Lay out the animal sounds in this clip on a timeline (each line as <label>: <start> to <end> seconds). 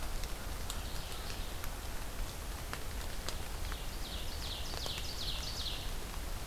Mourning Warbler (Geothlypis philadelphia): 0.5 to 1.7 seconds
Ovenbird (Seiurus aurocapilla): 3.3 to 5.9 seconds